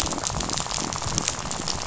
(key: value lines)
label: biophony, rattle
recorder: SoundTrap 500